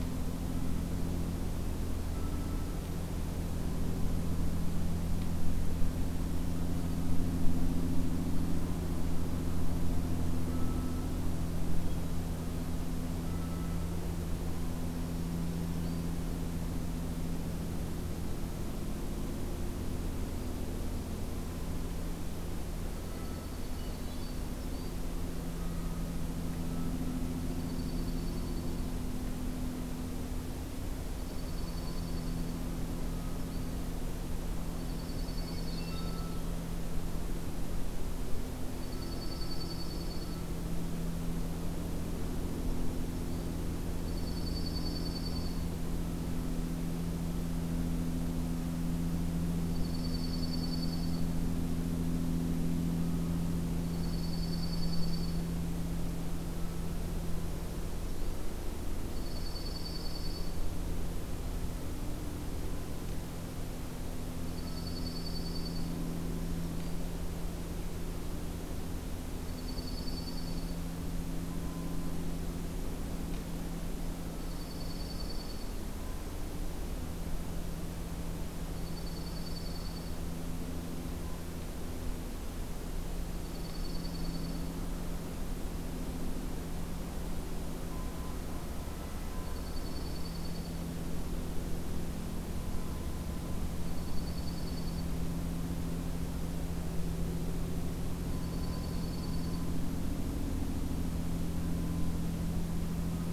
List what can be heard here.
Black-throated Green Warbler, Dark-eyed Junco, Hermit Thrush